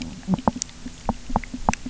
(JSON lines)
{"label": "biophony, knock", "recorder": "SoundTrap 300"}